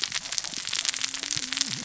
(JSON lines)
{"label": "biophony, cascading saw", "recorder": "SoundTrap 600 or HydroMoth"}